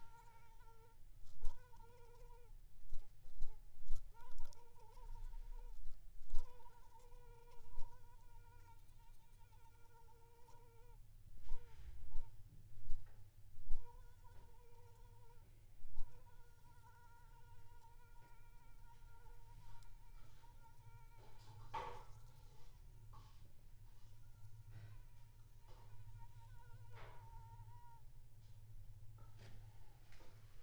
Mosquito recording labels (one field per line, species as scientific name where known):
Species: Anopheles squamosus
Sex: female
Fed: unfed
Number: one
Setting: cup